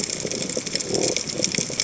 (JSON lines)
{"label": "biophony", "recorder": "HydroMoth"}